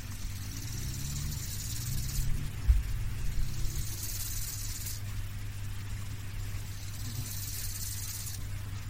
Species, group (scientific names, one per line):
Chorthippus biguttulus
Orthoptera